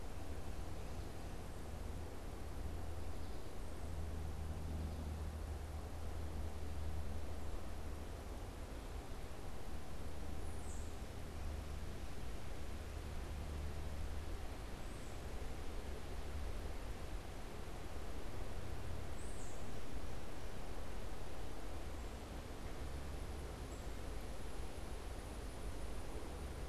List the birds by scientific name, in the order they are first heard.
Baeolophus bicolor